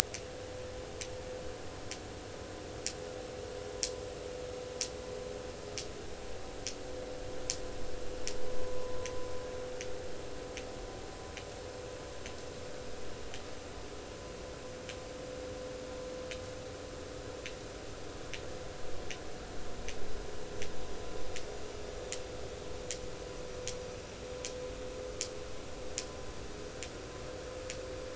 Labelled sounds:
8.6	9.0	vessel noise, 0.93 to 1.1 kHz

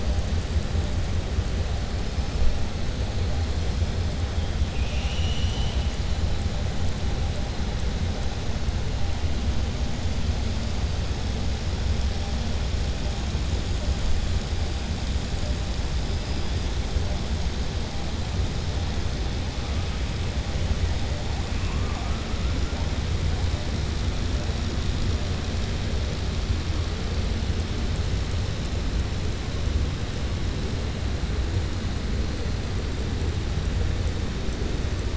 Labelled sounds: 4.6	5.9	killer whale, southern resident, 2.4 to 6.9 kHz

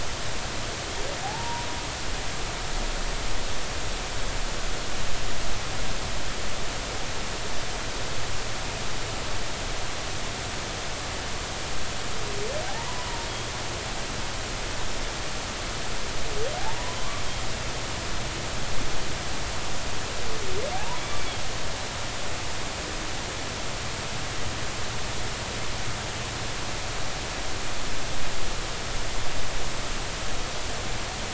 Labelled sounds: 1.2	1.7	humpback whale, 0.80 to 1.0 kHz
16.6	17.2	humpback whale, 0.80 to 1.2 kHz
20.7	21.0	humpback whale, 0.80 to 1.1 kHz

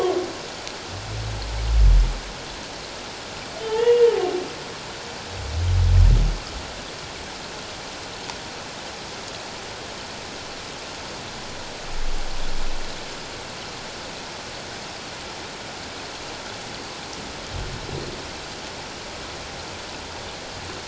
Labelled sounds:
3.6	4.1	humpback whale, 0.84 to 3.4 kHz

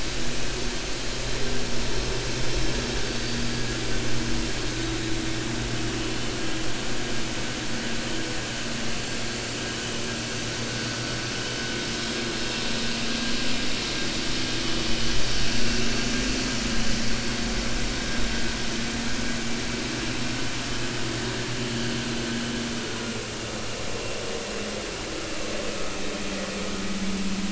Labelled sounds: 3.0	3.4	vessel noise, 4.5 to 4.7 kHz

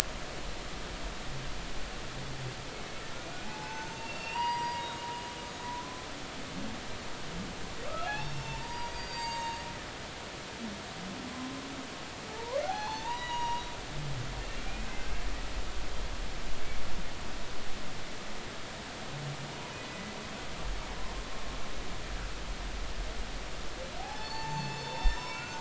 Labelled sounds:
3.4	4.9	humpback whale, 0.80 to 5.6 kHz
5.7	6.1	humpback whale, 0.96 to 1.1 kHz
7.9	9.6	humpback whale, 0.80 to 7.6 kHz
11.3	11.5	humpback whale, 0.99 to 1.1 kHz
12.3	13.7	humpback whale, 0.80 to 6.8 kHz
14.6	15.1	humpback whale, 2.3 to 2.7 kHz
19.9	20.1	humpback whale, 1.95 to 2.02 kHz
24.0	25.5	humpback whale, 0.80 to 6.3 kHz

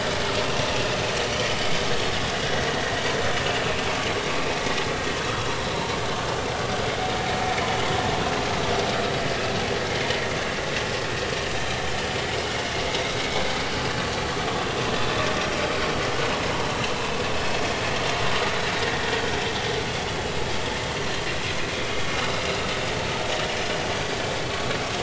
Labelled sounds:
13.2	13.5	vessel noise, 2.2 to 2.3 kHz
22.3	22.6	vessel noise, 2.7 to 2.8 kHz

